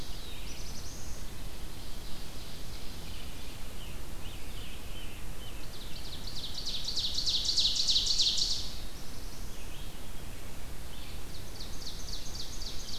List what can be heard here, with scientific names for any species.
Setophaga caerulescens, Seiurus aurocapilla, Piranga olivacea, Vireo olivaceus